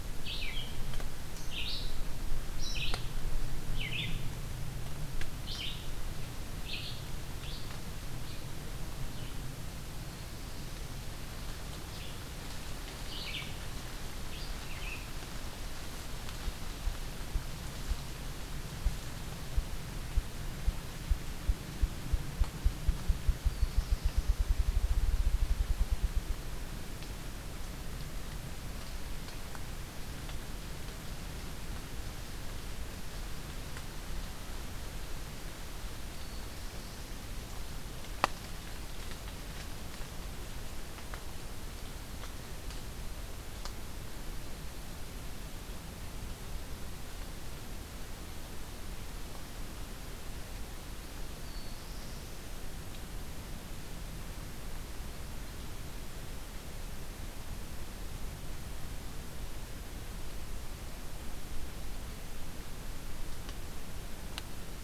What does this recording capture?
Red-eyed Vireo, Black-throated Blue Warbler